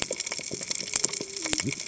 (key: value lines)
label: biophony, cascading saw
recorder: HydroMoth